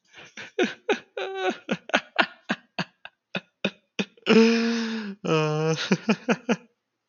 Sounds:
Laughter